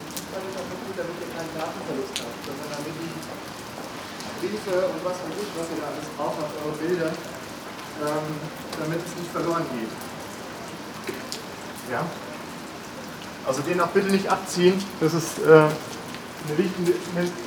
Is it raining?
yes